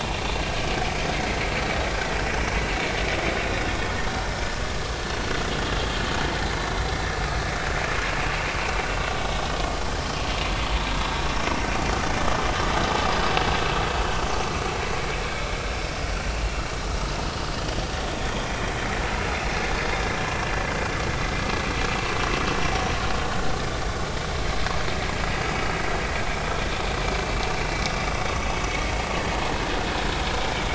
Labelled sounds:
1.1	1.4	vessel noise, 1.9 to 2.2 kHz
5.0	5.3	vessel noise, 4.2 to 4.4 kHz

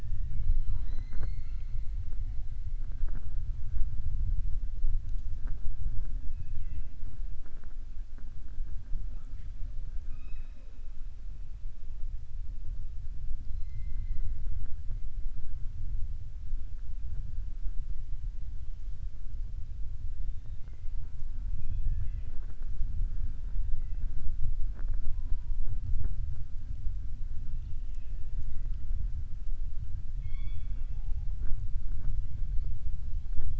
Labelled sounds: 6.3	6.9	killer whale, southern resident, 1.7 to 3.3 kHz
10.0	10.7	killer whale, southern resident, 0.42 to 5.2 kHz
27.5	28.3	killer whale, southern resident, 1.8 to 4.4 kHz
30.1	31.2	killer whale, southern resident, 0.29 to 4.6 kHz

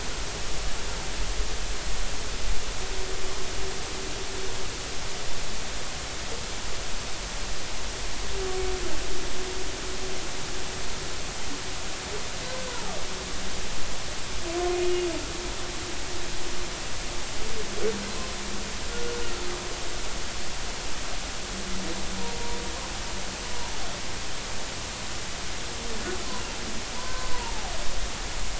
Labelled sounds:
27.0	27.7	humpback whale, 0.80 to 1.2 kHz

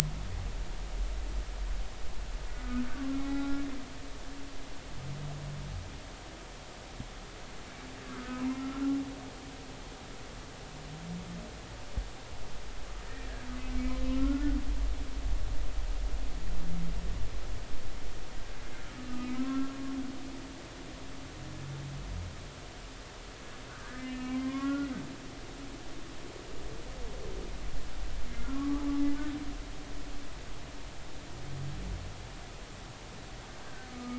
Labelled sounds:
2.6	3.6	humpback whale, 0.80 to 1.4 kHz
8.0	8.5	humpback whale, 1.2 to 1.7 kHz
13.7	14.6	humpback whale, 1.3 to 2.4 kHz
19.0	19.7	humpback whale, 1.0 to 1.4 kHz
23.8	24.9	humpback whale, 0.99 to 2.9 kHz
28.4	28.8	humpback whale, 0.96 to 1.5 kHz
33.6	34.1	humpback whale, 1.2 to 1.7 kHz

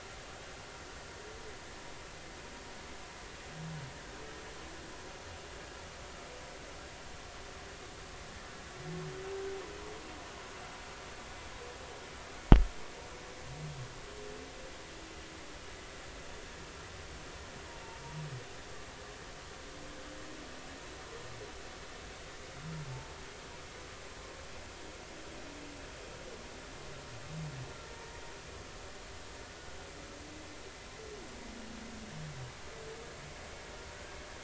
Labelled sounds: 22.9	23.1	humpback whale, 0.83 to 0.93 kHz

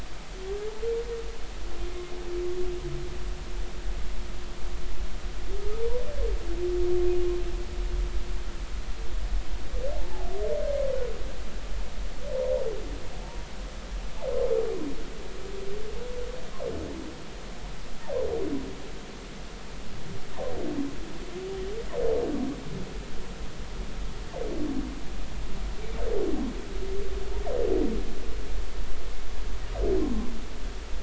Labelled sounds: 13.2	13.5	humpback whale, 0.86 to 0.99 kHz

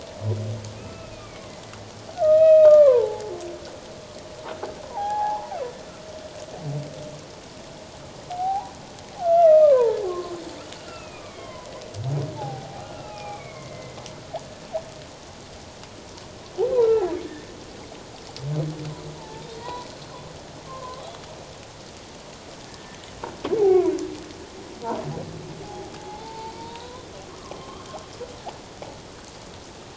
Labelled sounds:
0.8	1.4	humpback whale, 1.2 to 2.7 kHz
2.2	3.3	humpback whale, 0.78 to 2.6 kHz
4.8	5.5	humpback whale, 0.78 to 1.8 kHz
8.3	10.3	humpback whale, 0.78 to 2.8 kHz
10.8	11.7	humpback whale, 0.94 to 3.3 kHz
12.4	14.0	humpback whale, 0.78 to 2.8 kHz
16.8	17.1	humpback whale, 1.3 to 1.4 kHz
19.2	19.9	humpback whale, 0.81 to 2.0 kHz
20.7	21.1	humpback whale, 0.97 to 1.2 kHz
22.7	23.0	humpback whale, 1.7 to 1.8 kHz
23.6	23.9	humpback whale, 0.78 to 0.91 kHz
25.6	27.1	humpback whale, 0.78 to 1.1 kHz
27.3	27.9	humpback whale, 1.0 to 3.2 kHz

